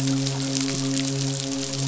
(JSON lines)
{"label": "biophony, midshipman", "recorder": "SoundTrap 500"}